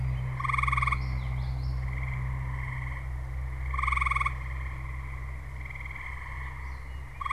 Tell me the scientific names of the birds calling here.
Geothlypis trichas